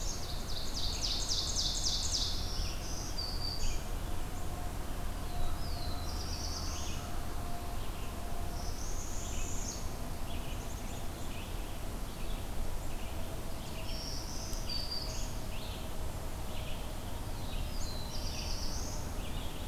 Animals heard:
Red-eyed Vireo (Vireo olivaceus)
Black-throated Green Warbler (Setophaga virens)
Northern Parula (Setophaga americana)
Black-throated Blue Warbler (Setophaga caerulescens)
Ovenbird (Seiurus aurocapilla)

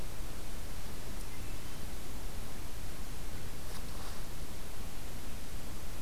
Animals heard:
Hermit Thrush (Catharus guttatus)

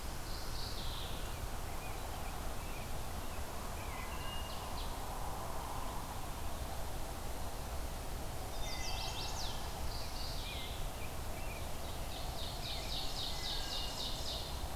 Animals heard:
Wood Thrush (Hylocichla mustelina)
Mourning Warbler (Geothlypis philadelphia)
Chestnut-sided Warbler (Setophaga pensylvanica)
Rose-breasted Grosbeak (Pheucticus ludovicianus)
Ovenbird (Seiurus aurocapilla)

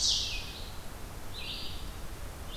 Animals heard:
Red-eyed Vireo (Vireo olivaceus)

